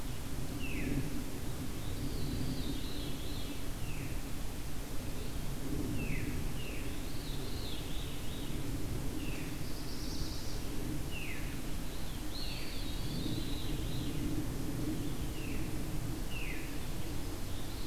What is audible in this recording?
Veery, Black-throated Blue Warbler, Eastern Wood-Pewee